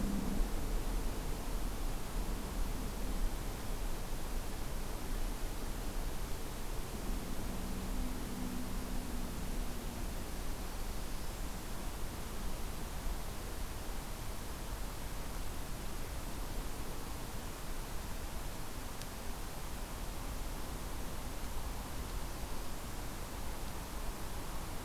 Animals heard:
forest ambience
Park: Acadia National Park